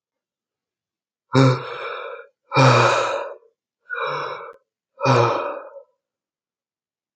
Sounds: Sigh